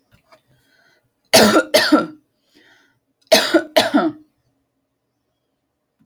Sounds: Cough